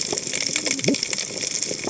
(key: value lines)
label: biophony, cascading saw
recorder: HydroMoth